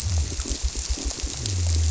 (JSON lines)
{"label": "biophony", "recorder": "SoundTrap 300"}